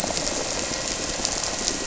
{"label": "anthrophony, boat engine", "recorder": "SoundTrap 300"}
{"label": "biophony", "recorder": "SoundTrap 300"}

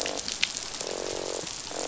{"label": "biophony, croak", "recorder": "SoundTrap 500"}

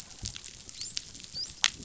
{"label": "biophony, dolphin", "recorder": "SoundTrap 500"}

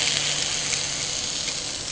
{"label": "anthrophony, boat engine", "recorder": "HydroMoth"}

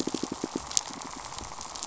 {"label": "biophony, pulse", "recorder": "SoundTrap 500"}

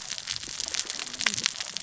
{"label": "biophony, cascading saw", "recorder": "SoundTrap 600 or HydroMoth"}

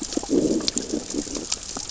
{"label": "biophony, growl", "recorder": "SoundTrap 600 or HydroMoth"}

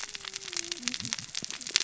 {"label": "biophony, cascading saw", "recorder": "SoundTrap 600 or HydroMoth"}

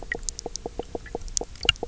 {"label": "biophony, knock croak", "recorder": "SoundTrap 300"}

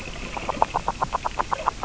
{"label": "biophony, grazing", "recorder": "SoundTrap 600 or HydroMoth"}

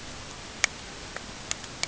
{"label": "ambient", "recorder": "HydroMoth"}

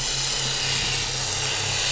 {"label": "anthrophony, boat engine", "recorder": "SoundTrap 500"}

